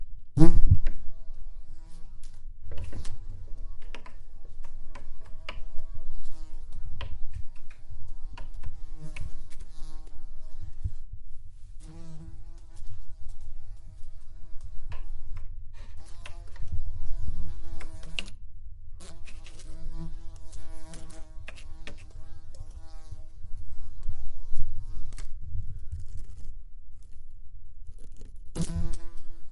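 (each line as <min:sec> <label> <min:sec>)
0:00.4 A fly is flying away. 0:00.9
0:01.0 A fly buzzes indoors. 0:11.3
0:03.7 Clicks repeating in an irregular pattern indoors. 0:06.4
0:07.4 Clicking sounds with an irregular pattern indoors. 0:09.9
0:12.6 A fly buzzes around a room. 0:25.4
0:25.3 A fly shuffles on a hard surface. 0:28.6
0:28.6 A fly takes off and flies away. 0:29.5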